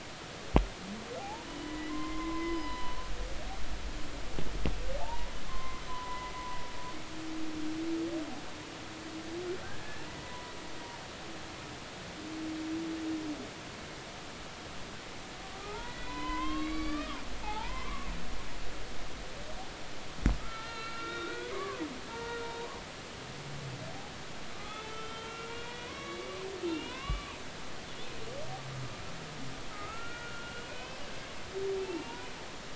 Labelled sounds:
1.2	3.0	humpback whale, 0.80 to 5.2 kHz
5.0	6.6	humpback whale, 0.80 to 2.0 kHz
9.6	10.5	humpback whale, 0.90 to 1.8 kHz
15.6	18.1	humpback whale, 0.80 to 4.7 kHz
20.4	22.8	humpback whale, 0.86 to 4.2 kHz
24.5	27.4	humpback whale, 0.90 to 4.0 kHz
29.7	31.0	humpback whale, 1.2 to 2.9 kHz
31.8	32.3	humpback whale, 0.83 to 2.9 kHz

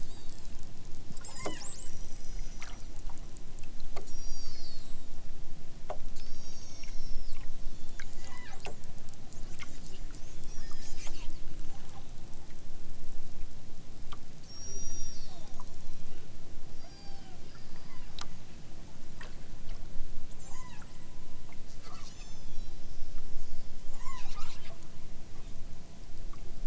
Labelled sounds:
0.0	0.6	killer whale, southern Alaska resident, 2.8 to 8.0 kHz
1.3	2.8	killer whale, southern Alaska resident, 1.5 to 8.0 kHz
4.0	5.1	killer whale, southern Alaska resident, 0.74 to 8.0 kHz
6.2	8.6	killer whale, southern Alaska resident, 0.51 to 8.0 kHz
10.2	11.2	killer whale, southern Alaska resident, 1.4 to 8.0 kHz
14.4	16.3	killer whale, southern Alaska resident, 0.78 to 8.0 kHz
16.7	18.1	killer whale, southern Alaska resident, 0.51 to 6.1 kHz
20.3	20.9	killer whale, southern Alaska resident, 0.41 to 8.0 kHz
21.7	22.8	killer whale, southern Alaska resident, 0.78 to 8.0 kHz
23.8	24.7	killer whale, southern Alaska resident, 0.55 to 8.0 kHz

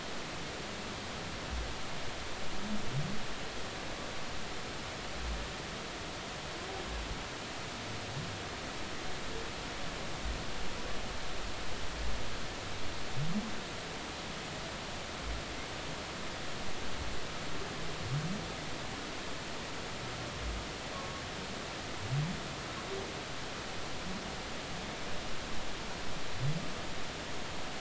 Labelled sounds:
20.9	21.2	humpback whale, 1.0 to 1.2 kHz

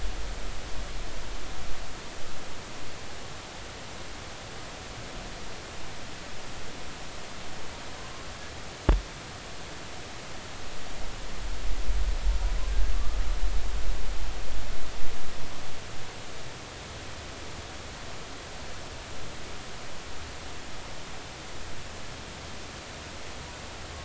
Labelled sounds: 12.9	13.2	humpback whale, 1.1 to 1.2 kHz

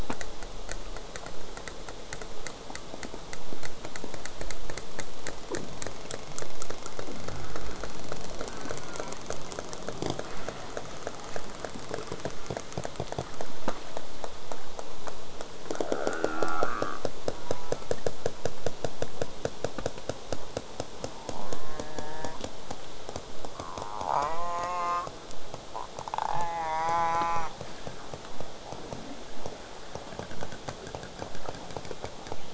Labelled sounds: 1.6	8.3	killer whale, southern resident, J pod, 0.25 to 8.0 kHz
8.5	9.2	killer whale, southern resident, J pod, call S04, 0.22 to 1.7 kHz
17.3	17.9	killer whale, southern resident, J pod, call S04, 0.17 to 1.9 kHz
21.4	22.4	killer whale, southern resident, J pod, call S04, 0.12 to 2.2 kHz
23.6	24.1	killer whale, southern resident, J pod, 0.15 to 1.5 kHz
24.1	25.1	killer whale, southern resident, J pod, call S04, 0.27 to 7.2 kHz
26.3	27.5	killer whale, southern resident, J pod, call S04, 0.46 to 6.4 kHz

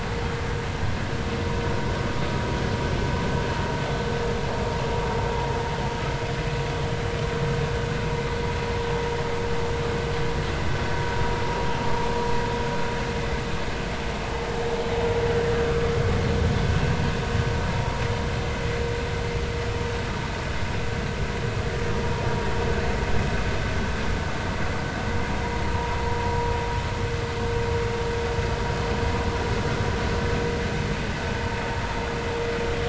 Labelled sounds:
25.7	26.0	vessel noise, 0.90 to 1.1 kHz
27.2	27.5	vessel noise, 0.93 to 0.99 kHz

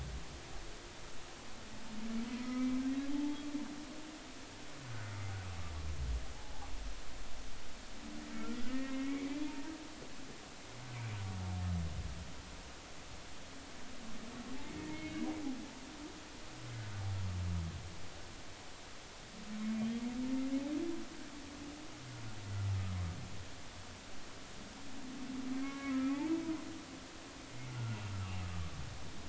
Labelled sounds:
2.3	3.4	humpback whale, 0.80 to 2.4 kHz
4.9	5.2	humpback whale, 1.4 to 1.6 kHz
6.3	6.7	humpback whale, 0.80 to 0.99 kHz
8.7	9.7	humpback whale, 0.86 to 2.4 kHz
14.6	15.2	humpback whale, 2.0 to 2.2 kHz
19.6	19.9	humpback whale, 2.1 to 2.2 kHz
25.6	26.4	humpback whale, 0.99 to 2.7 kHz
27.7	28.0	humpback whale, 1.3 to 1.5 kHz

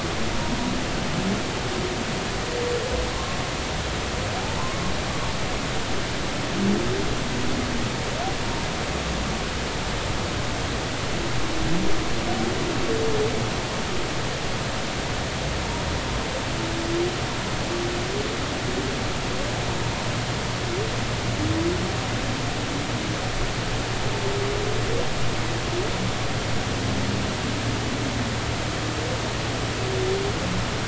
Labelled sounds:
3.1	3.4	humpback whale, 0.99 to 1.1 kHz

